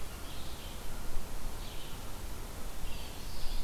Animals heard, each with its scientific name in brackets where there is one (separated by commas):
Black-throated Blue Warbler (Setophaga caerulescens), Red-eyed Vireo (Vireo olivaceus)